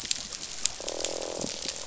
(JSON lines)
{"label": "biophony, croak", "recorder": "SoundTrap 500"}